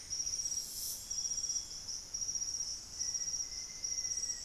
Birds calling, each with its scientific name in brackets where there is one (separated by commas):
Thrush-like Wren (Campylorhynchus turdinus), Black-faced Antthrush (Formicarius analis), Golden-crowned Spadebill (Platyrinchus coronatus)